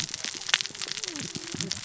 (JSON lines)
{"label": "biophony, cascading saw", "recorder": "SoundTrap 600 or HydroMoth"}